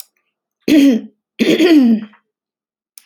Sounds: Throat clearing